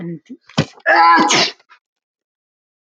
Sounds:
Sneeze